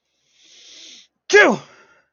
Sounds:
Sneeze